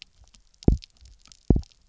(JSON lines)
{"label": "biophony, double pulse", "recorder": "SoundTrap 300"}